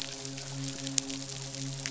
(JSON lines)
{"label": "biophony, midshipman", "recorder": "SoundTrap 500"}